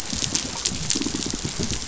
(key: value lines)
label: biophony
recorder: SoundTrap 500